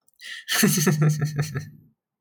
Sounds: Laughter